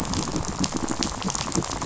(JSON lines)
{"label": "biophony, rattle", "recorder": "SoundTrap 500"}